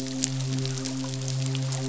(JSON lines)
{"label": "biophony, midshipman", "recorder": "SoundTrap 500"}